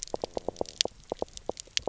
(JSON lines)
{"label": "biophony, knock", "recorder": "SoundTrap 300"}